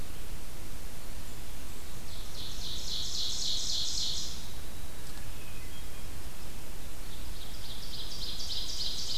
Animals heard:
Ovenbird (Seiurus aurocapilla)
Hermit Thrush (Catharus guttatus)

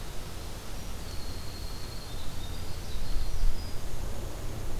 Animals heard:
Winter Wren (Troglodytes hiemalis)

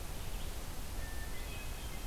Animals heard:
Hermit Thrush (Catharus guttatus)
Blue-headed Vireo (Vireo solitarius)

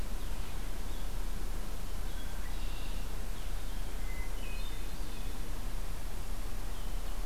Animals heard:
Red-winged Blackbird (Agelaius phoeniceus)
Hermit Thrush (Catharus guttatus)
Blue-headed Vireo (Vireo solitarius)

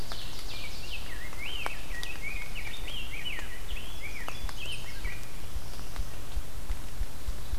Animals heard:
Ovenbird (Seiurus aurocapilla)
Ruffed Grouse (Bonasa umbellus)
Black-throated Blue Warbler (Setophaga caerulescens)
Chestnut-sided Warbler (Setophaga pensylvanica)
Rose-breasted Grosbeak (Pheucticus ludovicianus)

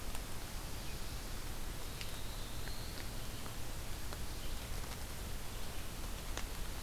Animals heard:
Black-throated Blue Warbler (Setophaga caerulescens)
Red-eyed Vireo (Vireo olivaceus)

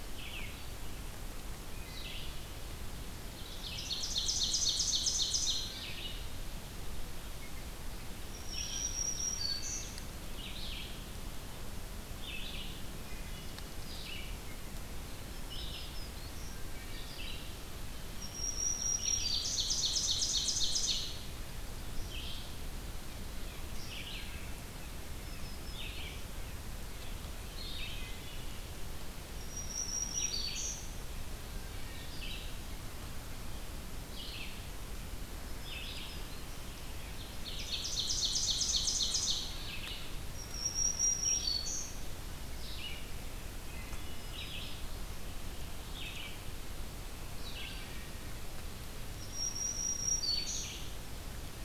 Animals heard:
Ovenbird (Seiurus aurocapilla)
Red-eyed Vireo (Vireo olivaceus)
Wood Thrush (Hylocichla mustelina)
Black-throated Green Warbler (Setophaga virens)

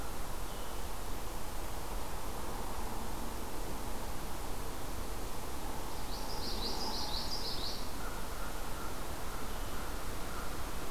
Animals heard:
Common Yellowthroat (Geothlypis trichas)
American Crow (Corvus brachyrhynchos)

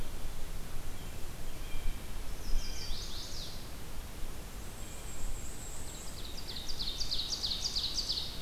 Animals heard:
Black-and-white Warbler (Mniotilta varia)
Chestnut-sided Warbler (Setophaga pensylvanica)
Blue Jay (Cyanocitta cristata)
Ovenbird (Seiurus aurocapilla)

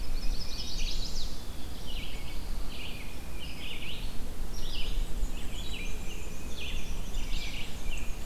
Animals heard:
American Robin (Turdus migratorius)
Pine Warbler (Setophaga pinus)
Chestnut-sided Warbler (Setophaga pensylvanica)
Red-eyed Vireo (Vireo olivaceus)
Tufted Titmouse (Baeolophus bicolor)
Black-and-white Warbler (Mniotilta varia)

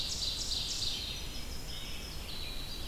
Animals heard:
Red-eyed Vireo (Vireo olivaceus)
Ovenbird (Seiurus aurocapilla)
Winter Wren (Troglodytes hiemalis)

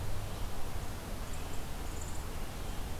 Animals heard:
Red-eyed Vireo (Vireo olivaceus)

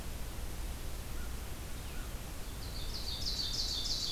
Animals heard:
Ovenbird (Seiurus aurocapilla)

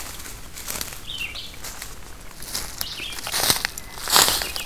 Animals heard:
Red-eyed Vireo (Vireo olivaceus)

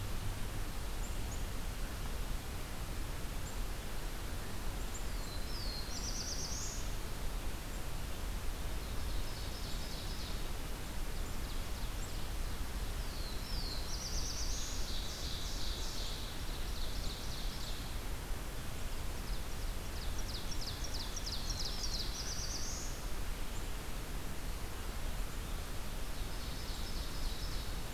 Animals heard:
Ovenbird (Seiurus aurocapilla)
Black-throated Blue Warbler (Setophaga caerulescens)

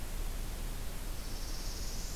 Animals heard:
Northern Parula (Setophaga americana)

